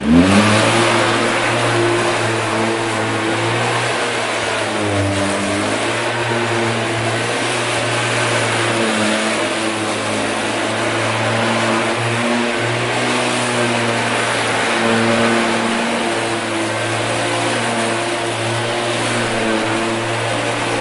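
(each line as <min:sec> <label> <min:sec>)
0:00.0 A lawnmower makes a repetitive metallic sound. 0:20.8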